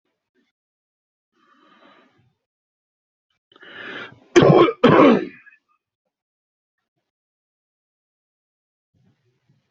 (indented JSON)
{
  "expert_labels": [
    {
      "quality": "good",
      "cough_type": "wet",
      "dyspnea": false,
      "wheezing": false,
      "stridor": false,
      "choking": false,
      "congestion": false,
      "nothing": true,
      "diagnosis": "lower respiratory tract infection",
      "severity": "mild"
    }
  ],
  "age": 39,
  "gender": "male",
  "respiratory_condition": false,
  "fever_muscle_pain": false,
  "status": "symptomatic"
}